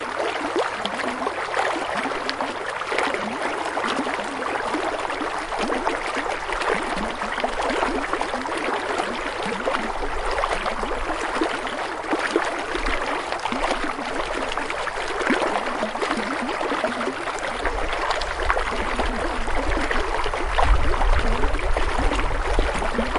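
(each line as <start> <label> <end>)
0.0 Water flows gently down a creek, making bubbling sounds. 23.2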